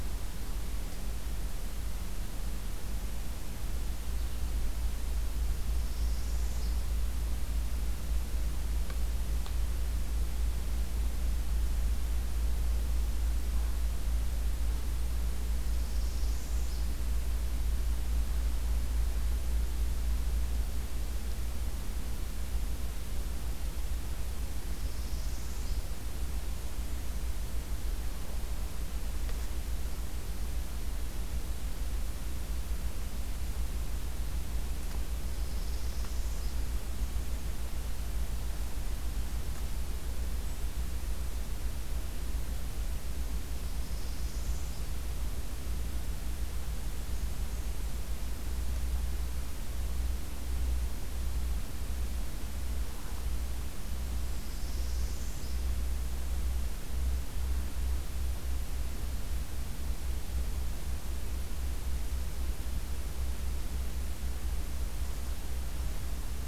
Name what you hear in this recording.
Northern Parula, Blackburnian Warbler